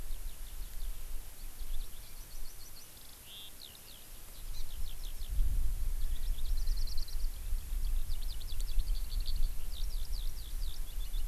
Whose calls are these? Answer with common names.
Eurasian Skylark